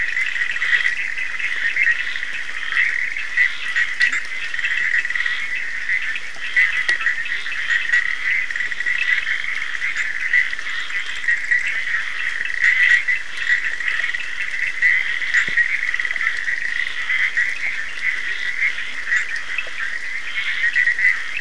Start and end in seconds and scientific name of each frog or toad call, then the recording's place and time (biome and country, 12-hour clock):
0.0	21.4	Boana bischoffi
0.0	21.4	Scinax perereca
0.0	21.4	Sphaenorhynchus surdus
4.0	4.3	Leptodactylus latrans
7.2	7.5	Leptodactylus latrans
18.1	19.2	Leptodactylus latrans
Atlantic Forest, Brazil, 12:45am